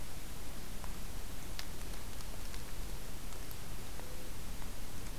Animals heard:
forest ambience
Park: Acadia National Park